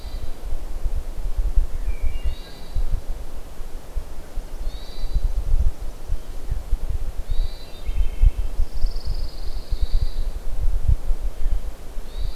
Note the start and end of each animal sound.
0.0s-12.3s: Hermit Thrush (Catharus guttatus)
1.8s-2.7s: Wood Thrush (Hylocichla mustelina)
7.6s-8.6s: Wood Thrush (Hylocichla mustelina)
8.4s-10.5s: Pine Warbler (Setophaga pinus)

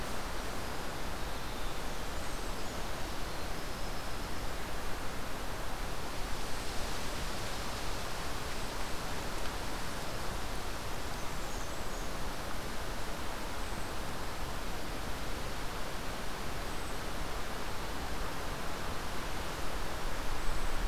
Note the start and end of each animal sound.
0.3s-4.9s: Winter Wren (Troglodytes hiemalis)
2.1s-2.8s: Brown Creeper (Certhia americana)
6.3s-7.0s: Brown Creeper (Certhia americana)
10.7s-12.3s: Blackburnian Warbler (Setophaga fusca)
13.3s-14.0s: Brown Creeper (Certhia americana)
16.5s-17.1s: Brown Creeper (Certhia americana)
20.2s-20.9s: Brown Creeper (Certhia americana)

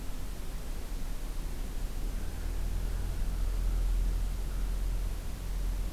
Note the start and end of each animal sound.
2.0s-4.7s: Common Raven (Corvus corax)

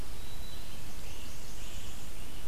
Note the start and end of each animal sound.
0.0s-2.5s: Red-eyed Vireo (Vireo olivaceus)
0.0s-0.9s: Hermit Thrush (Catharus guttatus)
0.4s-2.5s: Great Crested Flycatcher (Myiarchus crinitus)
0.7s-2.4s: Blackburnian Warbler (Setophaga fusca)

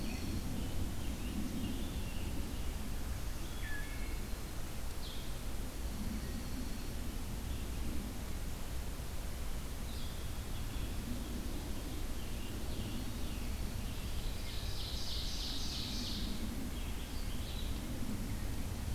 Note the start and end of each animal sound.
0.0s-0.6s: Dark-eyed Junco (Junco hyemalis)
0.0s-18.9s: Red-eyed Vireo (Vireo olivaceus)
0.1s-2.4s: Scarlet Tanager (Piranga olivacea)
3.5s-4.2s: Wood Thrush (Hylocichla mustelina)
5.6s-7.1s: Dark-eyed Junco (Junco hyemalis)
11.2s-14.6s: Scarlet Tanager (Piranga olivacea)
14.3s-16.5s: Ovenbird (Seiurus aurocapilla)

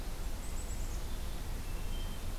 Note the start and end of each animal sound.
0.1s-1.5s: Black-capped Chickadee (Poecile atricapillus)
1.0s-2.4s: Hermit Thrush (Catharus guttatus)

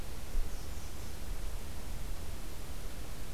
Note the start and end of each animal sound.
0.2s-1.3s: American Redstart (Setophaga ruticilla)

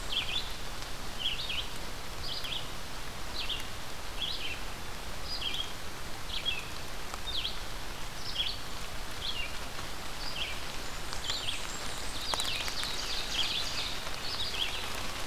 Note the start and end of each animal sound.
0.0s-15.3s: Red-eyed Vireo (Vireo olivaceus)
10.8s-12.4s: Blackburnian Warbler (Setophaga fusca)
12.0s-13.9s: Ovenbird (Seiurus aurocapilla)

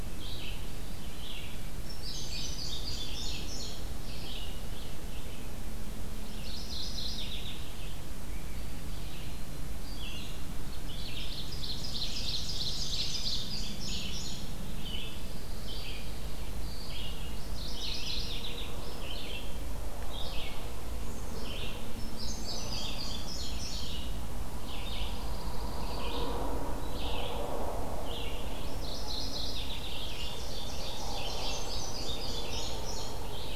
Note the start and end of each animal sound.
0.0s-11.8s: Red-eyed Vireo (Vireo olivaceus)
1.8s-4.0s: Indigo Bunting (Passerina cyanea)
6.3s-7.7s: Mourning Warbler (Geothlypis philadelphia)
9.0s-9.8s: Black-throated Green Warbler (Setophaga virens)
11.4s-13.5s: Ovenbird (Seiurus aurocapilla)
12.6s-14.6s: Indigo Bunting (Passerina cyanea)
13.7s-33.6s: Red-eyed Vireo (Vireo olivaceus)
14.9s-16.5s: Pine Warbler (Setophaga pinus)
17.4s-18.8s: Mourning Warbler (Geothlypis philadelphia)
22.0s-24.2s: Indigo Bunting (Passerina cyanea)
24.6s-26.2s: Pine Warbler (Setophaga pinus)
28.6s-30.4s: Mourning Warbler (Geothlypis philadelphia)
29.9s-31.6s: Ovenbird (Seiurus aurocapilla)
31.1s-33.4s: Indigo Bunting (Passerina cyanea)

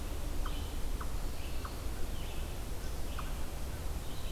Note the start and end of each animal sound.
0.2s-4.3s: Red-eyed Vireo (Vireo olivaceus)
0.3s-4.3s: unknown mammal

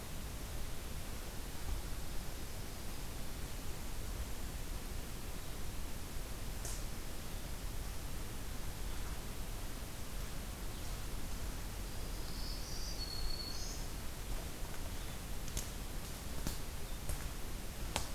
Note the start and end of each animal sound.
12.1s-13.9s: Black-throated Green Warbler (Setophaga virens)

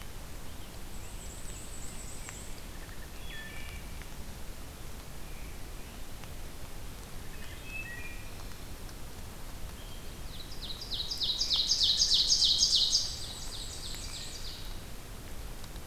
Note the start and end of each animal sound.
0.2s-2.4s: Scarlet Tanager (Piranga olivacea)
0.8s-2.7s: Black-and-white Warbler (Mniotilta varia)
2.7s-3.8s: Wood Thrush (Hylocichla mustelina)
5.1s-6.1s: Scarlet Tanager (Piranga olivacea)
7.2s-8.7s: Wood Thrush (Hylocichla mustelina)
9.6s-10.1s: Wood Thrush (Hylocichla mustelina)
9.8s-14.8s: Ovenbird (Seiurus aurocapilla)
11.4s-13.0s: Wood Thrush (Hylocichla mustelina)
12.8s-14.5s: Black-and-white Warbler (Mniotilta varia)

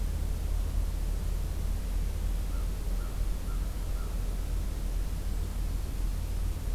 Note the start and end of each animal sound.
2.4s-4.2s: American Crow (Corvus brachyrhynchos)

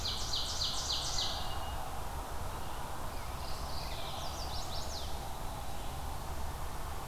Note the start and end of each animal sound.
0.0s-1.7s: Ovenbird (Seiurus aurocapilla)
3.0s-4.3s: Mourning Warbler (Geothlypis philadelphia)
3.9s-5.3s: Chestnut-sided Warbler (Setophaga pensylvanica)

